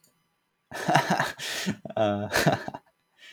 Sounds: Laughter